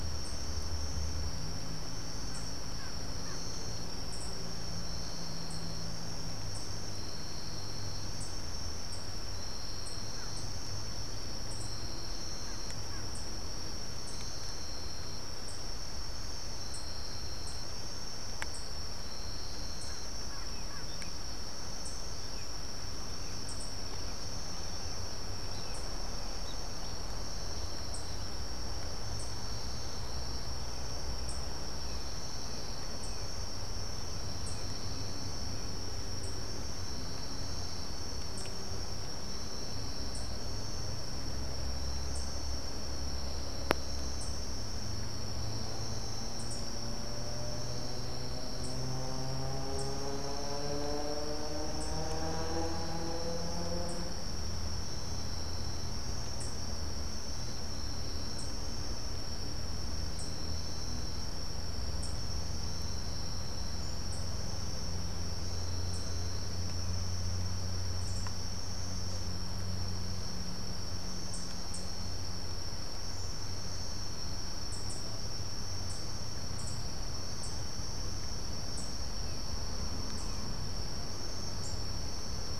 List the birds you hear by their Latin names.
unidentified bird, Turdus grayi